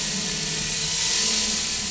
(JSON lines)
{"label": "anthrophony, boat engine", "recorder": "SoundTrap 500"}